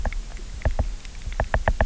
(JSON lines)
{"label": "biophony, knock", "recorder": "SoundTrap 300"}